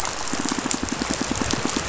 {"label": "biophony, pulse", "recorder": "SoundTrap 500"}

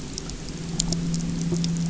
{"label": "anthrophony, boat engine", "recorder": "SoundTrap 300"}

